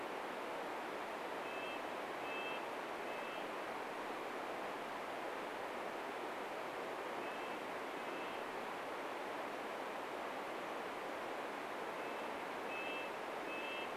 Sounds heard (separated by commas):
Red-breasted Nuthatch song